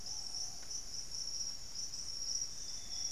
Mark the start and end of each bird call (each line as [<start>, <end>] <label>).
[0.00, 3.11] Ruddy Pigeon (Patagioenas subvinacea)
[1.91, 3.11] Plumbeous Antbird (Myrmelastes hyperythrus)
[2.11, 3.11] Amazonian Grosbeak (Cyanoloxia rothschildii)